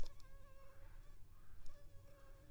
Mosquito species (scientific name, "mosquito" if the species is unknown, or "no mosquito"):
Culex pipiens complex